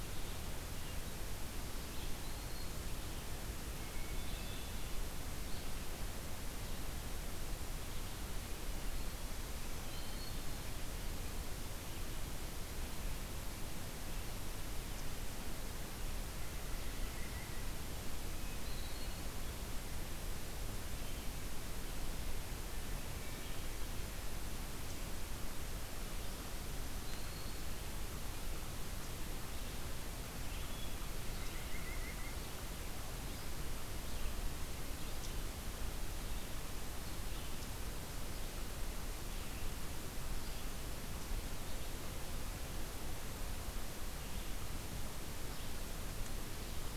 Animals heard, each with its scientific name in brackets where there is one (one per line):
Black-throated Green Warbler (Setophaga virens)
Hermit Thrush (Catharus guttatus)
Red-eyed Vireo (Vireo olivaceus)
White-breasted Nuthatch (Sitta carolinensis)